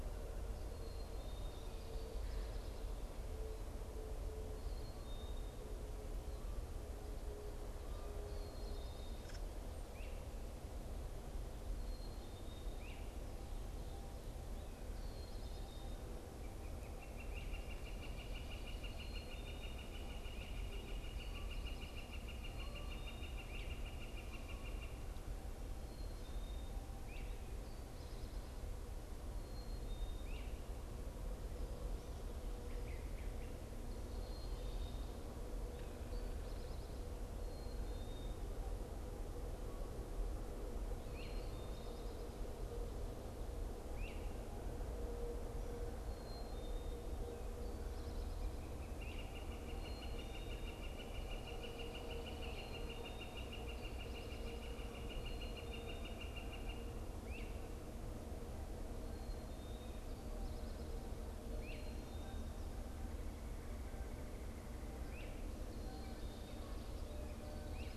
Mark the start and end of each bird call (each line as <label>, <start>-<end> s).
Great Crested Flycatcher (Myiarchus crinitus), 57.2-68.0 s